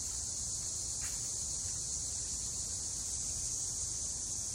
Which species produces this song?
Neotibicen linnei